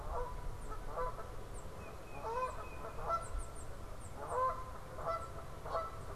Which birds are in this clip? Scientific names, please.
Branta canadensis, Baeolophus bicolor